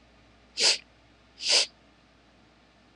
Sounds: Sniff